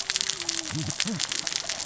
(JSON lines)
{"label": "biophony, cascading saw", "recorder": "SoundTrap 600 or HydroMoth"}